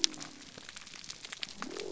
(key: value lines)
label: biophony
recorder: SoundTrap 300